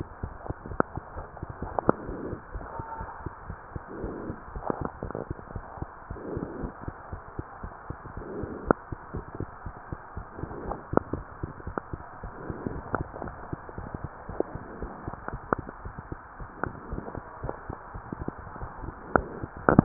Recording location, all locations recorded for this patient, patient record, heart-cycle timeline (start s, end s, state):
mitral valve (MV)
aortic valve (AV)+pulmonary valve (PV)+tricuspid valve (TV)+mitral valve (MV)
#Age: Child
#Sex: Female
#Height: 113.0 cm
#Weight: 22.5 kg
#Pregnancy status: False
#Murmur: Absent
#Murmur locations: nan
#Most audible location: nan
#Systolic murmur timing: nan
#Systolic murmur shape: nan
#Systolic murmur grading: nan
#Systolic murmur pitch: nan
#Systolic murmur quality: nan
#Diastolic murmur timing: nan
#Diastolic murmur shape: nan
#Diastolic murmur grading: nan
#Diastolic murmur pitch: nan
#Diastolic murmur quality: nan
#Outcome: Normal
#Campaign: 2015 screening campaign
0.00	5.70	unannotated
5.70	5.78	systole
5.78	5.88	S2
5.88	6.06	diastole
6.06	6.18	S1
6.18	6.26	systole
6.26	6.40	S2
6.40	6.56	diastole
6.56	6.72	S1
6.72	6.84	systole
6.84	6.94	S2
6.94	7.10	diastole
7.10	7.22	S1
7.22	7.38	systole
7.38	7.46	S2
7.46	7.62	diastole
7.62	7.72	S1
7.72	7.86	systole
7.86	7.96	S2
7.96	8.14	diastole
8.14	8.26	S1
8.26	8.36	systole
8.36	8.50	S2
8.50	8.64	diastole
8.64	8.76	S1
8.76	8.88	systole
8.88	8.98	S2
8.98	9.12	diastole
9.12	9.24	S1
9.24	9.34	systole
9.34	9.48	S2
9.48	9.66	diastole
9.66	9.74	S1
9.74	9.88	systole
9.88	9.98	S2
9.98	10.16	diastole
10.16	10.26	S1
10.26	10.40	systole
10.40	10.50	S2
10.50	10.62	diastole
10.62	10.80	S1
10.80	10.88	systole
10.88	10.96	S2
10.96	11.12	diastole
11.12	11.26	S1
11.26	11.40	systole
11.40	11.54	S2
11.54	11.66	diastole
11.66	11.78	S1
11.78	11.90	systole
11.90	12.02	S2
12.02	12.22	diastole
12.22	12.32	S1
12.32	12.46	systole
12.46	12.60	S2
12.60	12.74	diastole
12.74	12.84	S1
12.84	12.96	systole
12.96	13.08	S2
13.08	13.22	diastole
13.22	13.36	S1
13.36	13.48	systole
13.48	13.60	S2
13.60	13.76	diastole
13.76	13.88	S1
13.88	14.02	systole
14.02	14.12	S2
14.12	14.30	diastole
14.30	14.38	S1
14.38	14.50	systole
14.50	14.62	S2
14.62	14.80	diastole
14.80	14.92	S1
14.92	15.04	systole
15.04	15.14	S2
15.14	15.32	diastole
15.32	15.42	S1
15.42	15.50	systole
15.50	15.64	S2
15.64	15.82	diastole
15.82	15.94	S1
15.94	16.08	systole
16.08	16.18	S2
16.18	16.38	diastole
16.38	16.48	S1
16.48	16.64	systole
16.64	16.74	S2
16.74	16.90	diastole
16.90	17.04	S1
17.04	17.14	systole
17.14	17.24	S2
17.24	17.42	diastole
17.42	17.54	S1
17.54	17.70	systole
17.70	17.78	S2
17.78	17.94	diastole
17.94	18.02	S1
18.02	18.20	systole
18.20	18.34	S2
18.34	18.42	diastole
18.42	19.84	unannotated